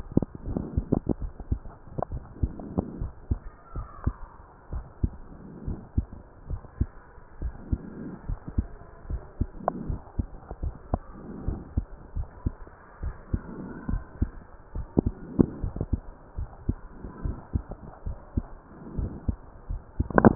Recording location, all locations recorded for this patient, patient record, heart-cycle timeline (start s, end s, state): mitral valve (MV)
aortic valve (AV)+pulmonary valve (PV)+tricuspid valve (TV)+mitral valve (MV)
#Age: Child
#Sex: Male
#Height: 130.0 cm
#Weight: 28.0 kg
#Pregnancy status: False
#Murmur: Absent
#Murmur locations: nan
#Most audible location: nan
#Systolic murmur timing: nan
#Systolic murmur shape: nan
#Systolic murmur grading: nan
#Systolic murmur pitch: nan
#Systolic murmur quality: nan
#Diastolic murmur timing: nan
#Diastolic murmur shape: nan
#Diastolic murmur grading: nan
#Diastolic murmur pitch: nan
#Diastolic murmur quality: nan
#Outcome: Normal
#Campaign: 2015 screening campaign
0.00	3.38	unannotated
3.38	3.73	diastole
3.73	3.88	S1
3.88	4.02	systole
4.02	4.16	S2
4.16	4.70	diastole
4.70	4.86	S1
4.86	5.02	systole
5.02	5.14	S2
5.14	5.66	diastole
5.66	5.78	S1
5.78	5.95	systole
5.95	6.08	S2
6.08	6.50	diastole
6.50	6.62	S1
6.62	6.79	systole
6.79	6.90	S2
6.90	7.40	diastole
7.40	7.54	S1
7.54	7.71	systole
7.71	7.78	S2
7.78	8.27	diastole
8.27	8.37	S1
8.37	8.56	systole
8.56	8.68	S2
8.68	9.08	diastole
9.08	9.22	S1
9.22	9.40	systole
9.40	9.50	S2
9.50	9.88	diastole
9.88	10.00	S1
10.00	10.18	systole
10.18	10.28	S2
10.28	10.62	diastole
10.62	10.74	S1
10.74	10.92	systole
10.92	11.02	S2
11.02	11.45	diastole
11.45	11.58	S1
11.58	11.76	systole
11.76	11.88	S2
11.88	12.16	diastole
12.16	12.28	S1
12.28	12.43	systole
12.43	12.52	S2
12.52	13.02	diastole
13.02	13.16	S1
13.16	13.32	systole
13.32	13.42	S2
13.42	13.88	diastole
13.88	14.02	S1
14.02	14.20	systole
14.20	14.32	S2
14.32	14.76	diastole
14.76	20.35	unannotated